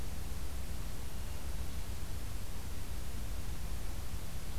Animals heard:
forest ambience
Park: Acadia National Park